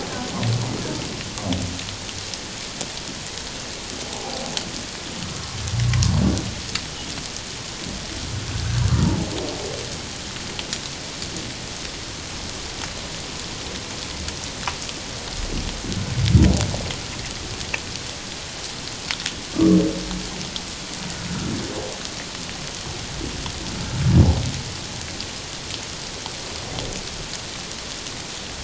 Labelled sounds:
4.1	4.5	humpback whale, 0.78 to 0.94 kHz
5.2	6.1	humpback whale, 0.94 to 1.3 kHz
8.5	9.3	humpback whale, 0.78 to 1.7 kHz
19.5	19.8	humpback whale, 1.0 to 1.2 kHz

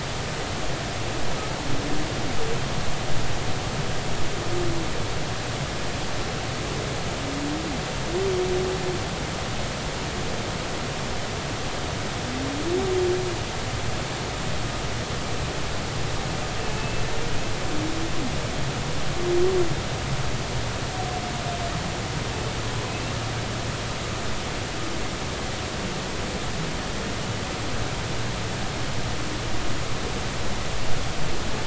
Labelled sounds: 16.6	17.0	humpback whale, 2.5 to 2.7 kHz

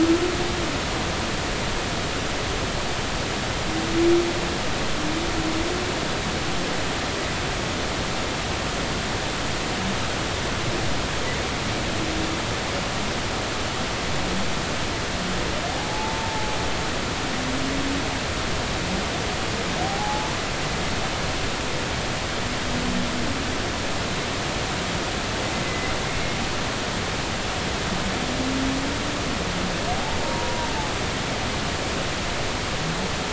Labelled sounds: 15.9	16.5	humpback whale, 0.80 to 0.96 kHz
19.8	20.3	humpback whale, 0.80 to 0.90 kHz
25.6	25.9	humpback whale, 2.0 to 2.1 kHz
30.2	30.7	humpback whale, 0.86 to 1.0 kHz

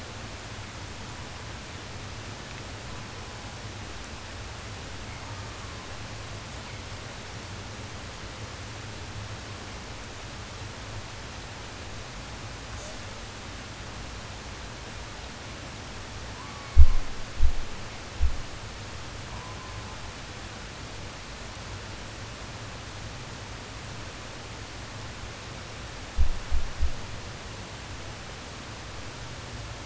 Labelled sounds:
2.7	3.7	killer whale, southern resident, 0.40 to 1.2 kHz
5.2	6.0	killer whale, southern resident, 0.49 to 2.0 kHz
12.7	13.0	killer whale, southern resident, J pod, call S05, 4.8 to 8.0 kHz
16.1	17.1	killer whale, southern resident, 0.24 to 2.7 kHz
19.1	20.1	killer whale, southern resident, 0.42 to 1.5 kHz

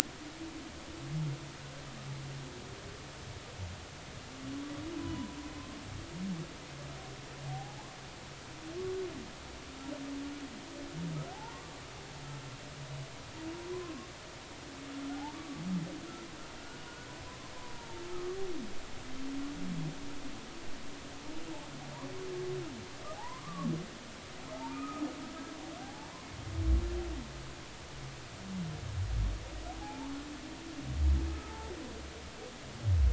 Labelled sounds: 5.0	5.4	humpback whale, 0.93 to 1.1 kHz
7.5	7.9	humpback whale, 0.80 to 0.99 kHz
11.3	11.6	humpback whale, 0.80 to 1.0 kHz
13.7	14.1	humpback whale, 0.96 to 1.2 kHz
15.3	15.6	humpback whale, 1.1 to 1.2 kHz
17.8	18.4	humpback whale, 0.86 to 1.3 kHz
23.1	23.7	humpback whale, 0.80 to 1.2 kHz
24.5	25.0	humpback whale, 0.80 to 1.3 kHz
25.8	26.1	humpback whale, 0.80 to 0.96 kHz
29.8	30.2	humpback whale, 0.80 to 1.1 kHz
31.3	31.5	humpback whale, 1.2 to 1.3 kHz

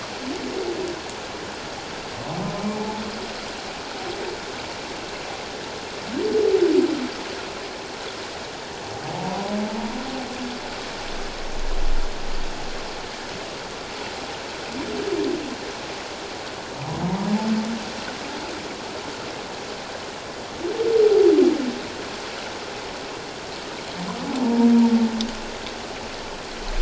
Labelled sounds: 2.7	3.0	humpback whale, 0.81 to 0.91 kHz
9.1	9.9	humpback whale, 0.78 to 1.1 kHz
24.4	24.7	humpback whale, 0.88 to 1.0 kHz

